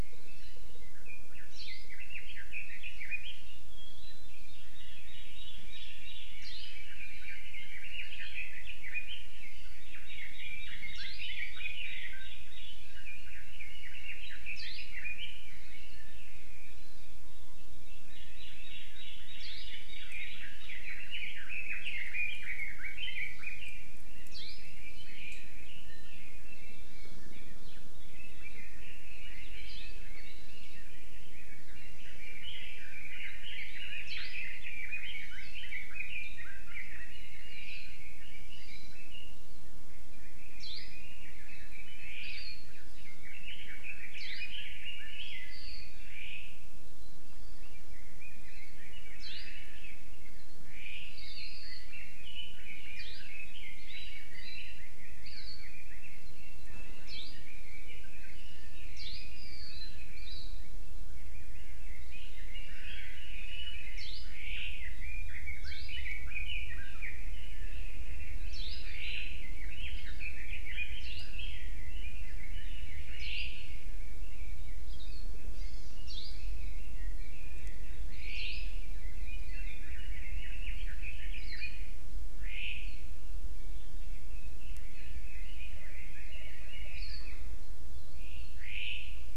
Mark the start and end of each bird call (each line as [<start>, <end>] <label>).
[0.80, 3.40] Red-billed Leiothrix (Leiothrix lutea)
[6.50, 16.20] Red-billed Leiothrix (Leiothrix lutea)
[18.10, 27.20] Red-billed Leiothrix (Leiothrix lutea)
[28.00, 39.40] Red-billed Leiothrix (Leiothrix lutea)
[39.90, 42.60] Red-billed Leiothrix (Leiothrix lutea)
[42.90, 45.90] Red-billed Leiothrix (Leiothrix lutea)
[47.60, 60.50] Red-billed Leiothrix (Leiothrix lutea)
[51.20, 51.80] Hawaii Akepa (Loxops coccineus)
[53.80, 54.90] Hawaii Amakihi (Chlorodrepanis virens)
[55.20, 55.80] Hawaii Akepa (Loxops coccineus)
[61.10, 74.80] Red-billed Leiothrix (Leiothrix lutea)
[75.50, 76.00] Hawaii Amakihi (Chlorodrepanis virens)
[76.20, 78.10] Red-billed Leiothrix (Leiothrix lutea)
[78.80, 82.00] Red-billed Leiothrix (Leiothrix lutea)
[81.40, 81.70] Hawaii Akepa (Loxops coccineus)
[84.00, 87.50] Red-billed Leiothrix (Leiothrix lutea)
[86.90, 87.20] Hawaii Akepa (Loxops coccineus)